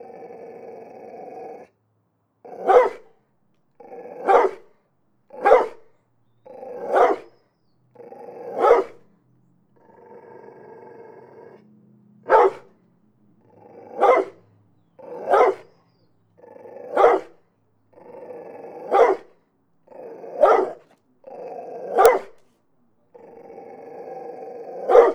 Is there an animal here?
yes